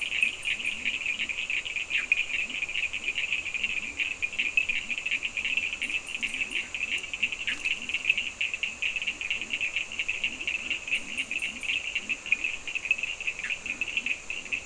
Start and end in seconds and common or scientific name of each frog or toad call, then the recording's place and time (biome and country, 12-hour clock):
0.0	14.6	Leptodactylus latrans
0.0	14.6	Cochran's lime tree frog
1.7	2.3	Bischoff's tree frog
7.4	7.8	Bischoff's tree frog
13.3	13.7	Bischoff's tree frog
Atlantic Forest, Brazil, 4:15am